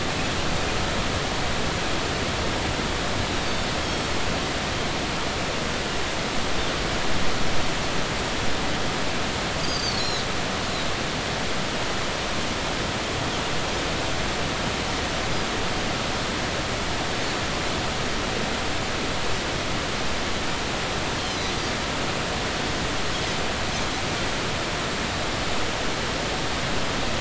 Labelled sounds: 3.4	3.7	Pacific white-sided dolphin, 3.6 to 3.7 kHz
9.6	10.3	Pacific white-sided dolphin, 3.8 to 7.0 kHz
21.3	21.5	Pacific white-sided dolphin, 4.9 to 6.2 kHz

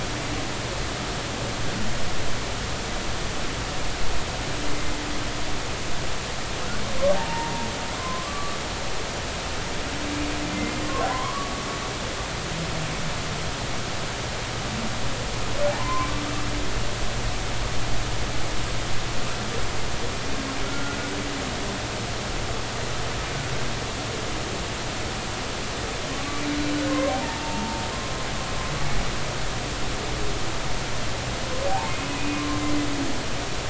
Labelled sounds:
7.1	8.6	humpback whale, 0.80 to 1.2 kHz
11.1	11.5	humpback whale, 0.93 to 1.2 kHz
15.8	16.1	humpback whale, 0.90 to 1.1 kHz
20.7	21.0	humpback whale, 1.3 to 1.5 kHz
26.9	27.8	humpback whale, 0.80 to 1.1 kHz
31.9	32.6	humpback whale, 1.0 to 2.6 kHz

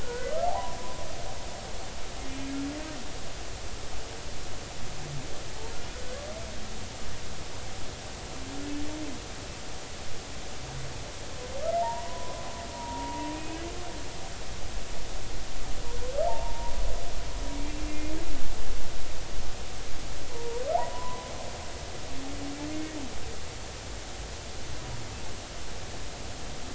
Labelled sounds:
0.0	0.8	humpback whale, 0.80 to 1.6 kHz
11.8	13.6	humpback whale, 0.86 to 2.6 kHz
16.3	16.8	humpback whale, 0.80 to 1.1 kHz
17.5	18.2	humpback whale, 2.1 to 2.5 kHz
20.3	21.3	humpback whale, 0.80 to 1.1 kHz
22.7	22.9	humpback whale, 2.0 to 2.2 kHz

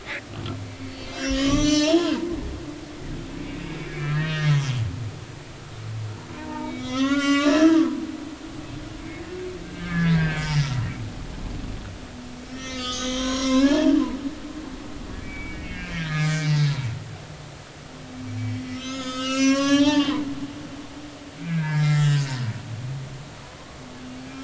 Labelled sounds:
0.8	2.9	humpback whale, 0.86 to 7.6 kHz
3.4	4.8	humpback whale, 1.2 to 3.4 kHz
6.3	8.0	humpback whale, 0.83 to 6.1 kHz
9.6	10.7	humpback whale, 1.2 to 4.9 kHz
12.4	14.0	humpback whale, 0.83 to 6.9 kHz
15.2	16.5	humpback whale, 1.2 to 2.8 kHz
18.7	20.2	humpback whale, 1.0 to 8.0 kHz
20.6	22.2	humpback whale, 0.80 to 4.0 kHz

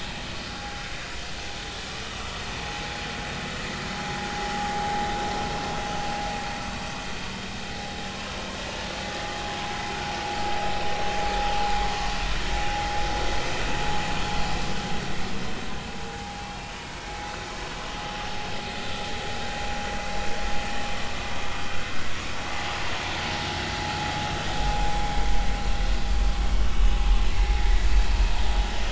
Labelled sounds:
8.1	8.4	vessel noise, 0.99 to 1.1 kHz
18.3	18.6	vessel noise, 5.1 to 5.3 kHz
21.5	21.8	vessel noise, 1.2 to 1.5 kHz
26.7	27.0	vessel noise, 2.8 to 3.0 kHz

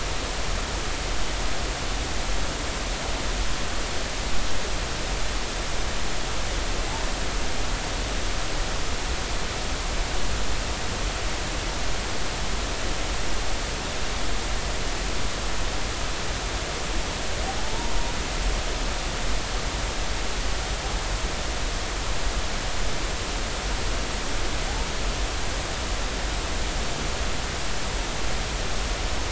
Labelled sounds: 17.6	17.9	humpback whale, 0.83 to 0.99 kHz

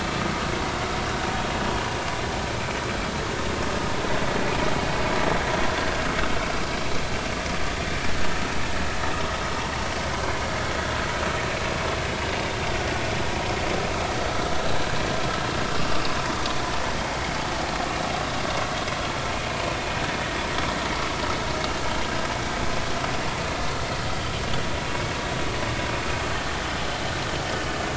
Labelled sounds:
15.7	16.0	vessel noise, 1.1 to 1.2 kHz

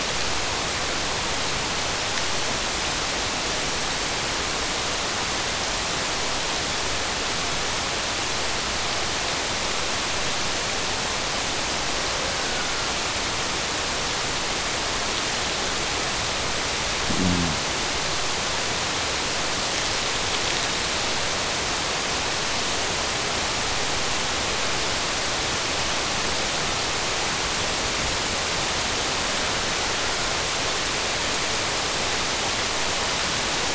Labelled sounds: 11.7	13.0	killer whale, Bigg's (transient), Gulf of Alaska transient, 1.3 to 2.0 kHz

